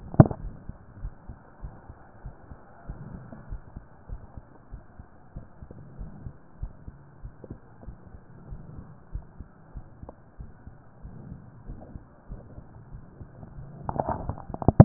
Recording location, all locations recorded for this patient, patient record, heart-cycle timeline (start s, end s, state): mitral valve (MV)
aortic valve (AV)+pulmonary valve (PV)+tricuspid valve (TV)+mitral valve (MV)+mitral valve (MV)
#Age: nan
#Sex: Female
#Height: nan
#Weight: nan
#Pregnancy status: True
#Murmur: Absent
#Murmur locations: nan
#Most audible location: nan
#Systolic murmur timing: nan
#Systolic murmur shape: nan
#Systolic murmur grading: nan
#Systolic murmur pitch: nan
#Systolic murmur quality: nan
#Diastolic murmur timing: nan
#Diastolic murmur shape: nan
#Diastolic murmur grading: nan
#Diastolic murmur pitch: nan
#Diastolic murmur quality: nan
#Outcome: Normal
#Campaign: 2014 screening campaign
0.00	0.88	unannotated
0.88	1.00	diastole
1.00	1.12	S1
1.12	1.28	systole
1.28	1.38	S2
1.38	1.62	diastole
1.62	1.74	S1
1.74	1.90	systole
1.90	2.00	S2
2.00	2.22	diastole
2.22	2.34	S1
2.34	2.50	systole
2.50	2.58	S2
2.58	2.88	diastole
2.88	2.98	S1
2.98	3.12	systole
3.12	3.26	S2
3.26	3.50	diastole
3.50	3.60	S1
3.60	3.74	systole
3.74	3.84	S2
3.84	4.10	diastole
4.10	4.20	S1
4.20	4.38	systole
4.38	4.46	S2
4.46	4.72	diastole
4.72	4.82	S1
4.82	5.00	systole
5.00	5.08	S2
5.08	5.34	diastole
5.34	5.44	S1
5.44	5.60	systole
5.60	5.70	S2
5.70	5.98	diastole
5.98	6.10	S1
6.10	6.24	systole
6.24	6.34	S2
6.34	6.60	diastole
6.60	6.72	S1
6.72	6.88	systole
6.88	6.96	S2
6.96	7.22	diastole
7.22	7.32	S1
7.32	7.50	systole
7.50	7.58	S2
7.58	7.84	diastole
7.84	7.96	S1
7.96	8.12	systole
8.12	8.22	S2
8.22	8.48	diastole
8.48	8.60	S1
8.60	8.74	systole
8.74	8.86	S2
8.86	9.12	diastole
9.12	9.24	S1
9.24	9.40	systole
9.40	9.48	S2
9.48	9.74	diastole
9.74	9.86	S1
9.86	10.02	systole
10.02	10.12	S2
10.12	10.38	diastole
10.38	10.50	S1
10.50	10.66	systole
10.66	10.76	S2
10.76	11.04	diastole
11.04	11.14	S1
11.14	11.28	systole
11.28	11.40	S2
11.40	11.66	diastole
11.66	11.78	S1
11.78	11.94	systole
11.94	12.04	S2
12.04	12.30	diastole
12.30	12.40	S1
12.40	12.56	systole
12.56	12.66	S2
12.66	12.92	diastole
12.92	13.02	S1
13.02	13.18	systole
13.18	13.28	S2
13.28	13.36	diastole
13.36	14.85	unannotated